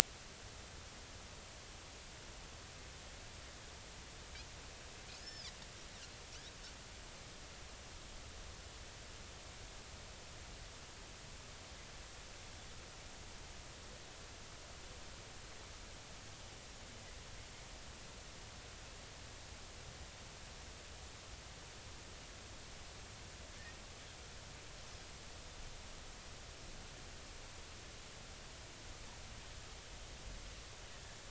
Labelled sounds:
5.2	5.5	Pacific white-sided dolphin, 4.6 to 5.5 kHz

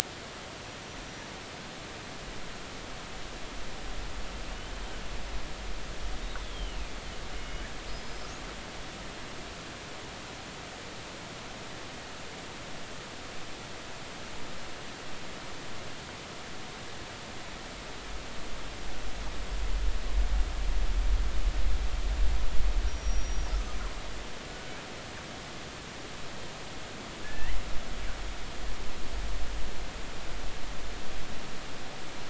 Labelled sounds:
6.4	6.9	killer whale, northern resident, G clan, 2.3 to 3.6 kHz
7.3	7.6	killer whale, northern resident, G clan, call N24i, 2.8 to 3.0 kHz
7.9	8.2	killer whale, northern resident, G clan, 4.8 to 5.1 kHz
22.9	23.5	killer whale, northern resident, G clan, call N23i, 5.6 to 5.8 kHz
27.2	27.6	killer whale, northern resident, G clan, GI subclan, call N24i, 1.7 to 2.2 kHz

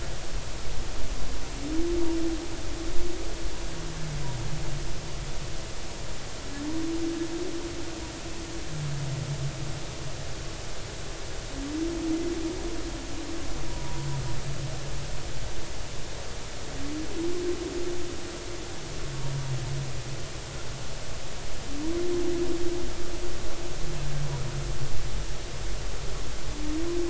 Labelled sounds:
13.7	14.1	humpback whale, 0.90 to 1.0 kHz

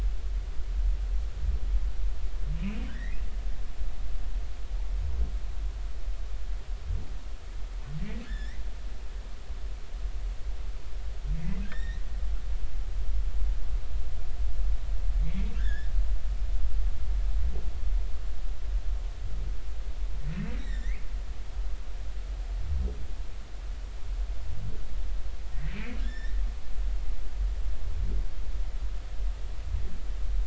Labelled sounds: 2.6	3.2	humpback whale, 1.4 to 2.9 kHz
8.2	8.6	humpback whale, 1.5 to 5.5 kHz
11.6	12.0	humpback whale, 1.5 to 4.0 kHz
15.2	15.9	humpback whale, 1.5 to 3.7 kHz
20.6	21.0	humpback whale, 1.7 to 5.6 kHz
25.7	26.3	humpback whale, 1.6 to 5.7 kHz

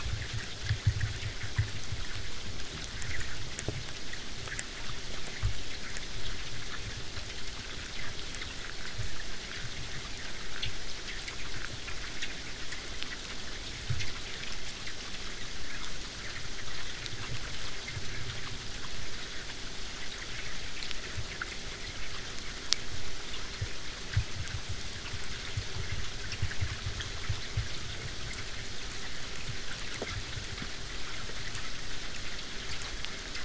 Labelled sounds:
22.0	27.0	vessel noise, 0 to 8.0 kHz

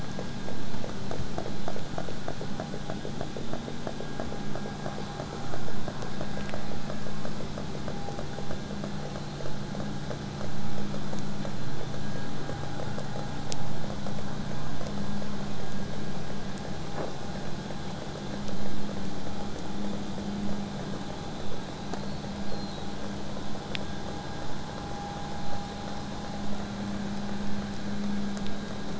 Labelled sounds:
5.2	6.6	killer whale, southern resident, 1.5 to 7.7 kHz
15.4	20.4	vessel noise, 0 to 8.0 kHz
22.0	23.0	killer whale, southern resident, whistle, 1.6 to 6.6 kHz

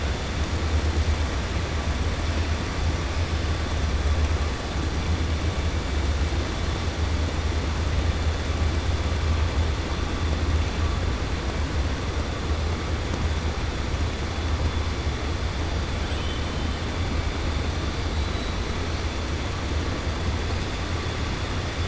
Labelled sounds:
16.0	16.4	killer whale, 2.4 to 3.7 kHz

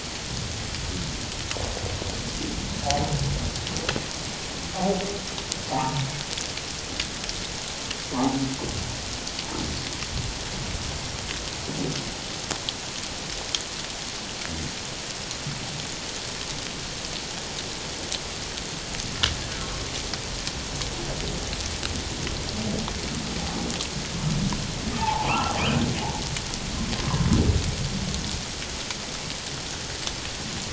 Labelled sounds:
5.7	6.0	humpback whale, 0.78 to 1.0 kHz
8.1	8.4	humpback whale, 0.78 to 1.2 kHz
25.0	25.6	humpback whale, 0.78 to 1.6 kHz

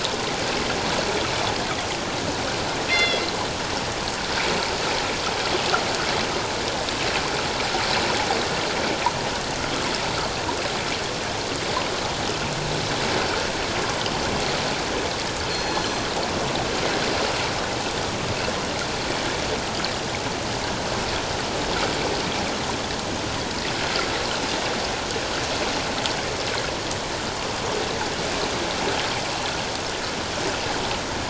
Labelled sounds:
2.9	3.4	killer whale, northern resident, G clan, 2.0 to 5.7 kHz
15.5	16.1	killer whale, northern resident, G clan, 4.2 to 6.1 kHz

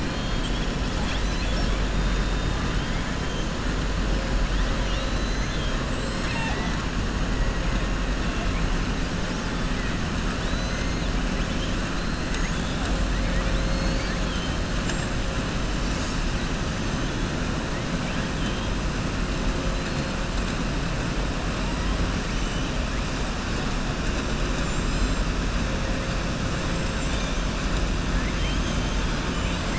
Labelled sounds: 5.8	6.7	killer whale, southern resident, 0.46 to 8.0 kHz
13.2	14.5	killer whale, southern resident, 1.6 to 5.2 kHz
28.1	29.2	killer whale, southern resident, 1.7 to 4.1 kHz

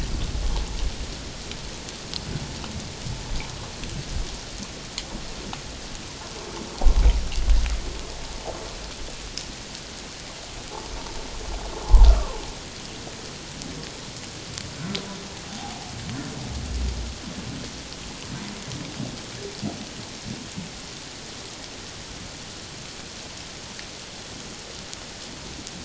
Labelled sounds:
12.0	12.4	humpback whale, 0.81 to 1.4 kHz
15.5	15.8	humpback whale, 0.78 to 0.91 kHz

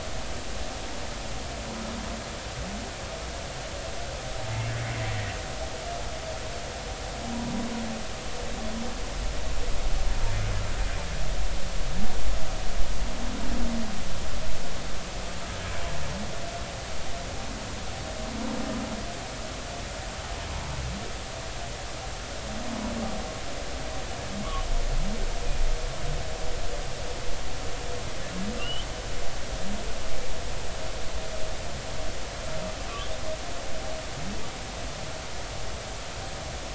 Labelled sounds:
28.6	28.9	humpback whale, 2.7 to 3.3 kHz

